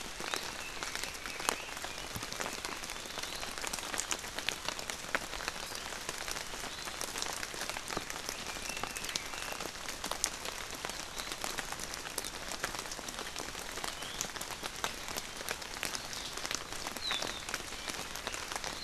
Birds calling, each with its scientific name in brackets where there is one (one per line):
Red-billed Leiothrix (Leiothrix lutea)